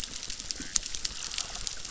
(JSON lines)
{"label": "biophony, chorus", "recorder": "SoundTrap 600"}